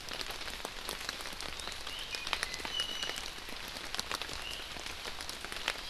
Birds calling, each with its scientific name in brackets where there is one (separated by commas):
Iiwi (Drepanis coccinea)